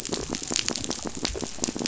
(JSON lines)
{"label": "biophony", "recorder": "SoundTrap 500"}